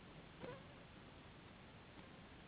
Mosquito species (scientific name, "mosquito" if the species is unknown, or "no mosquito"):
Anopheles gambiae s.s.